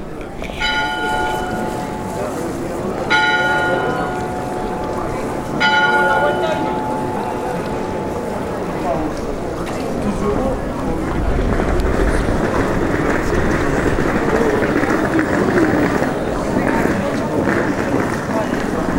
How many times did the bell ring?
three